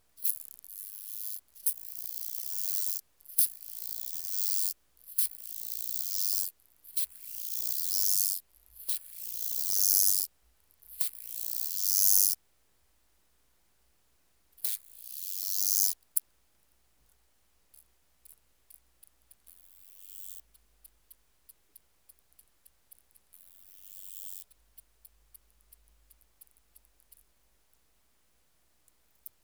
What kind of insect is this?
orthopteran